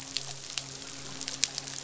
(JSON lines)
{"label": "biophony, midshipman", "recorder": "SoundTrap 500"}